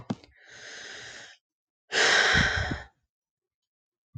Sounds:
Sigh